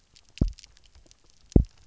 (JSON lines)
{"label": "biophony, double pulse", "recorder": "SoundTrap 300"}